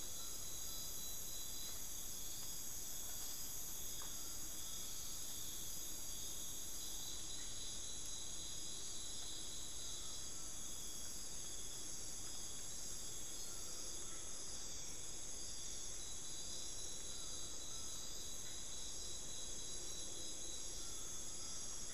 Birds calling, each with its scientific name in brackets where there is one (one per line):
Buckley's Forest-Falcon (Micrastur buckleyi)